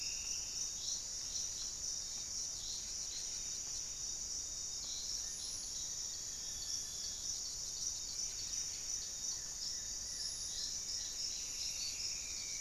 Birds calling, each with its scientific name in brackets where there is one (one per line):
Striped Woodcreeper (Xiphorhynchus obsoletus)
Buff-breasted Wren (Cantorchilus leucotis)
Black-faced Antthrush (Formicarius analis)
Goeldi's Antbird (Akletos goeldii)